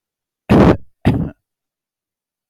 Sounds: Cough